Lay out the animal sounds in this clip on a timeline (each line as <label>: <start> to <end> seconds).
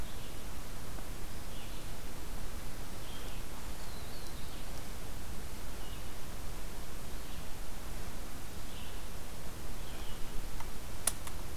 Red-eyed Vireo (Vireo olivaceus): 0.0 to 11.6 seconds
Black-throated Blue Warbler (Setophaga caerulescens): 3.7 to 4.5 seconds